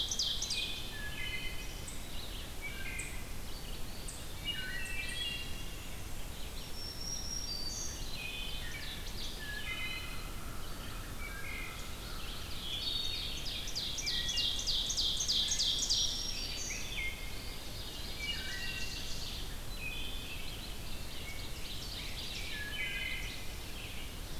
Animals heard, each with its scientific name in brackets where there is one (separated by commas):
Eastern Wood-Pewee (Contopus virens), Wood Thrush (Hylocichla mustelina), Black-throated Green Warbler (Setophaga virens), Ovenbird (Seiurus aurocapilla), Red-eyed Vireo (Vireo olivaceus)